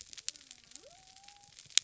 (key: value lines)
label: biophony
recorder: SoundTrap 300